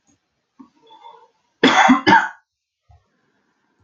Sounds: Cough